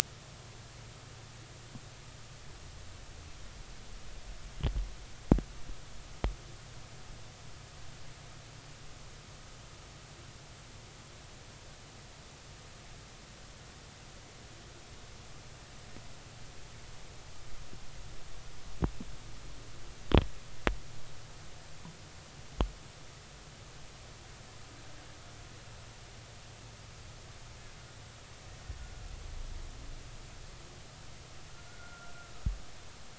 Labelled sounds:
31.7	32.1	killer whale, Bigg's (transient), 1.3 to 1.5 kHz

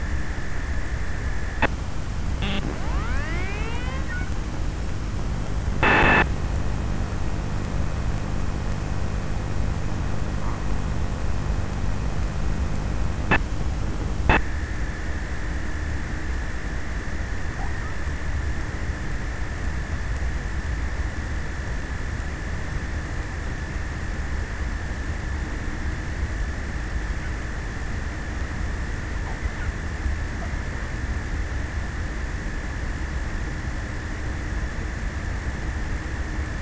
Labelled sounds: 0.0	7.0	abiotic sound, 0 to 6.6 kHz
12.2	15.0	abiotic sound, 0 to 5.9 kHz

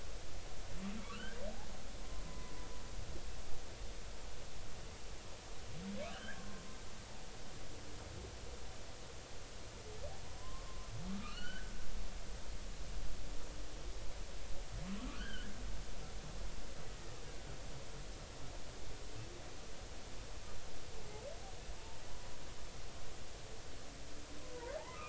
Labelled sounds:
1.0	2.6	humpback whale, 0.96 to 3.2 kHz
6.1	6.6	humpback whale, 0.99 to 3.2 kHz
10.4	10.7	humpback whale, 0.96 to 1.1 kHz
11.2	11.7	humpback whale, 1.1 to 4.7 kHz
15.1	15.5	humpback whale, 1.1 to 3.3 kHz

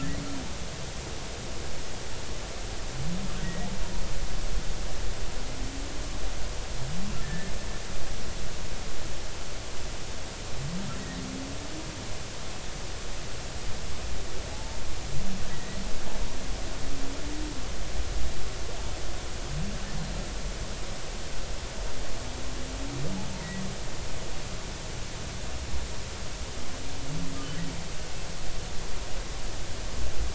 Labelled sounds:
3.4	3.7	humpback whale, 1.8 to 2.0 kHz
7.2	7.5	humpback whale, 1.7 to 1.8 kHz
14.5	15.8	humpback whale, 0.80 to 2.0 kHz

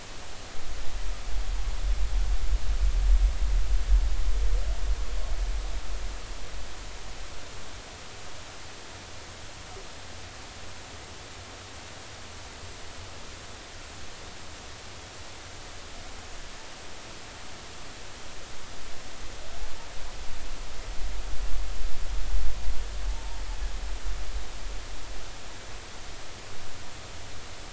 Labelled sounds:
23.1	23.4	humpback whale, 0.80 to 0.99 kHz

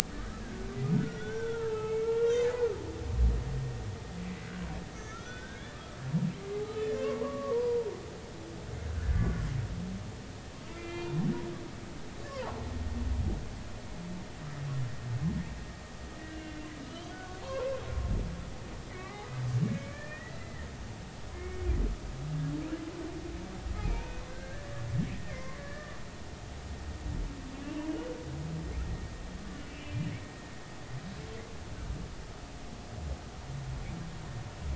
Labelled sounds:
0.4	2.5	humpback whale, 0.90 to 6.0 kHz
5.0	5.8	humpback whale, 1.3 to 3.8 kHz
6.6	7.9	humpback whale, 0.86 to 3.1 kHz
8.9	9.3	humpback whale, 1.3 to 1.8 kHz
10.7	11.1	humpback whale, 1.3 to 2.8 kHz
12.3	12.5	humpback whale, 0.83 to 1.2 kHz
16.3	17.7	humpback whale, 0.90 to 4.4 kHz
18.9	20.7	humpback whale, 1.1 to 2.4 kHz
21.3	21.7	humpback whale, 2.1 to 2.2 kHz
23.8	24.7	humpback whale, 1.5 to 2.6 kHz
25.3	26.0	humpback whale, 0.99 to 2.2 kHz
29.8	30.1	humpback whale, 2.3 to 2.5 kHz

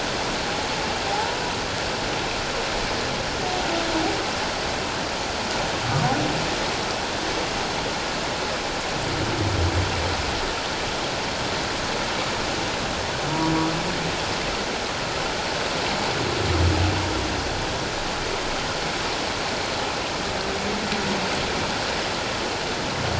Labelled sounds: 1.1	1.4	humpback whale, 0.78 to 1.0 kHz

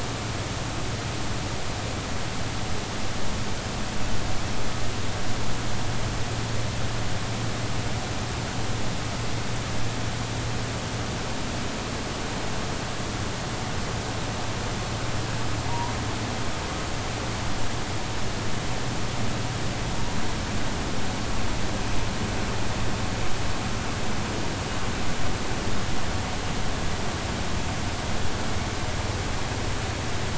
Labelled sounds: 15.7	15.9	humpback whale, 0.90 to 1.1 kHz

